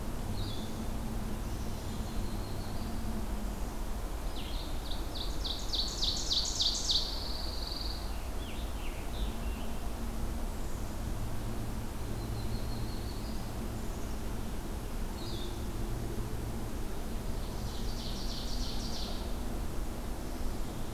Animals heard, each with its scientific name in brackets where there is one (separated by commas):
Pine Warbler (Setophaga pinus), Scarlet Tanager (Piranga olivacea), Ovenbird (Seiurus aurocapilla), Black-capped Chickadee (Poecile atricapillus), Blue-headed Vireo (Vireo solitarius), Prairie Warbler (Setophaga discolor)